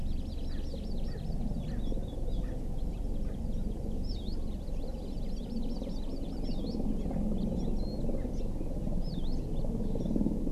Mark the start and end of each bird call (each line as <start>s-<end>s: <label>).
0.1s-1.6s: Hawaii Amakihi (Chlorodrepanis virens)
0.5s-0.6s: Erckel's Francolin (Pternistis erckelii)
1.1s-1.2s: Erckel's Francolin (Pternistis erckelii)
1.7s-1.8s: Erckel's Francolin (Pternistis erckelii)
2.4s-2.6s: Erckel's Francolin (Pternistis erckelii)
4.0s-4.4s: Warbling White-eye (Zosterops japonicus)
4.6s-6.4s: Hawaii Amakihi (Chlorodrepanis virens)
6.4s-6.8s: Warbling White-eye (Zosterops japonicus)
7.7s-8.0s: Warbling White-eye (Zosterops japonicus)
9.0s-9.4s: Warbling White-eye (Zosterops japonicus)